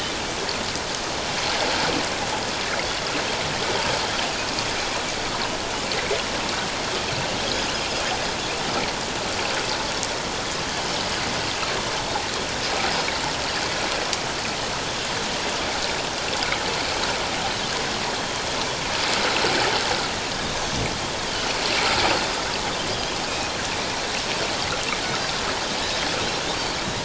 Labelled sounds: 7.5	7.7	Pacific white-sided dolphin, 4.9 to 5.1 kHz
20.3	20.6	Pacific white-sided dolphin, 3.6 to 3.8 kHz

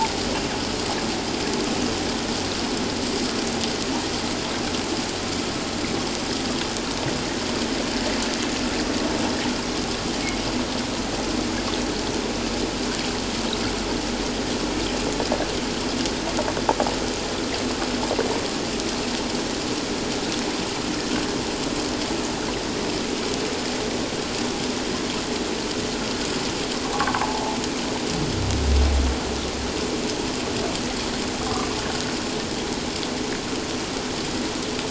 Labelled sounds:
27.2	27.6	humpback whale, 0.78 to 1.1 kHz

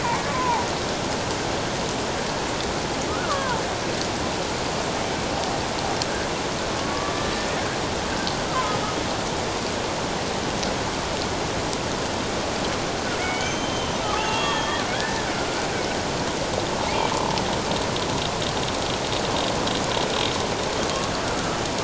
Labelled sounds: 0.3	0.7	killer whale, Bigg's (transient), 0.78 to 1.2 kHz
3.1	3.6	killer whale, Bigg's (transient), 0.84 to 1.5 kHz
6.8	7.3	killer whale, Bigg's (transient), 1.1 to 1.2 kHz
8.5	8.7	killer whale, Bigg's (transient), 0.97 to 1.4 kHz
13.2	14.8	killer whale, Bigg's (transient), 0.81 to 6.6 kHz
15.3	15.7	killer whale, Bigg's (transient), 1.3 to 1.6 kHz

